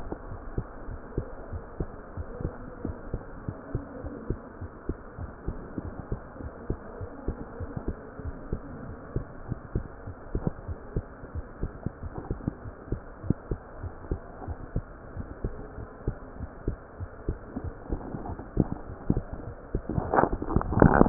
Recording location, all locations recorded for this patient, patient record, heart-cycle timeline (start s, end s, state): aortic valve (AV)
aortic valve (AV)+pulmonary valve (PV)+tricuspid valve (TV)+mitral valve (MV)
#Age: Child
#Sex: Female
#Height: 135.0 cm
#Weight: 29.2 kg
#Pregnancy status: False
#Murmur: Absent
#Murmur locations: nan
#Most audible location: nan
#Systolic murmur timing: nan
#Systolic murmur shape: nan
#Systolic murmur grading: nan
#Systolic murmur pitch: nan
#Systolic murmur quality: nan
#Diastolic murmur timing: nan
#Diastolic murmur shape: nan
#Diastolic murmur grading: nan
#Diastolic murmur pitch: nan
#Diastolic murmur quality: nan
#Outcome: Abnormal
#Campaign: 2015 screening campaign
0.00	0.28	unannotated
0.28	0.40	S1
0.40	0.54	systole
0.54	0.66	S2
0.66	0.86	diastole
0.86	1.00	S1
1.00	1.14	systole
1.14	1.28	S2
1.28	1.50	diastole
1.50	1.64	S1
1.64	1.76	systole
1.76	1.88	S2
1.88	2.16	diastole
2.16	2.28	S1
2.28	2.44	systole
2.44	2.56	S2
2.56	2.82	diastole
2.82	2.96	S1
2.96	3.10	systole
3.10	3.22	S2
3.22	3.44	diastole
3.44	3.56	S1
3.56	3.70	systole
3.70	3.82	S2
3.82	4.04	diastole
4.04	4.12	S1
4.12	4.28	systole
4.28	4.38	S2
4.38	4.60	diastole
4.60	4.70	S1
4.70	4.86	systole
4.86	4.98	S2
4.98	5.20	diastole
5.20	5.30	S1
5.30	5.46	systole
5.46	5.60	S2
5.60	5.86	diastole
5.86	5.98	S1
5.98	6.10	systole
6.10	6.20	S2
6.20	6.44	diastole
6.44	6.52	S1
6.52	6.68	systole
6.68	6.78	S2
6.78	7.00	diastole
7.00	7.10	S1
7.10	7.26	systole
7.26	7.36	S2
7.36	7.60	diastole
7.60	7.70	S1
7.70	7.86	systole
7.86	7.96	S2
7.96	8.24	diastole
8.24	8.36	S1
8.36	8.50	systole
8.50	8.64	S2
8.64	8.88	diastole
8.88	8.96	S1
8.96	9.14	systole
9.14	9.28	S2
9.28	9.48	diastole
9.48	9.58	S1
9.58	9.74	systole
9.74	9.86	S2
9.86	10.06	diastole
10.06	10.14	S1
10.14	10.32	systole
10.32	10.44	S2
10.44	10.66	diastole
10.66	10.78	S1
10.78	10.94	systole
10.94	11.10	S2
11.10	11.36	diastole
11.36	11.46	S1
11.46	11.60	systole
11.60	11.74	S2
11.74	12.02	diastole
12.02	12.14	S1
12.14	12.28	systole
12.28	12.42	S2
12.42	12.64	diastole
12.64	12.74	S1
12.74	12.90	systole
12.90	13.02	S2
13.02	13.24	diastole
13.24	13.36	S1
13.36	13.49	systole
13.49	13.62	S2
13.62	13.82	diastole
13.82	13.94	S1
13.94	14.06	systole
14.06	14.22	S2
14.22	14.48	diastole
14.48	14.58	S1
14.58	14.72	systole
14.72	14.86	S2
14.86	15.14	diastole
15.14	15.28	S1
15.28	15.42	systole
15.42	15.54	S2
15.54	15.76	diastole
15.76	15.88	S1
15.88	16.06	systole
16.06	16.18	S2
16.18	16.40	diastole
16.40	16.50	S1
16.50	16.66	systole
16.66	16.78	S2
16.78	17.00	diastole
17.00	17.10	S1
17.10	17.26	systole
17.26	17.40	S2
17.40	17.64	diastole
17.64	17.76	S1
17.76	17.90	systole
17.90	18.04	S2
18.04	18.28	diastole
18.28	21.09	unannotated